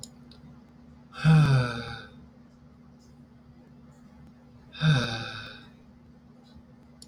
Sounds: Sigh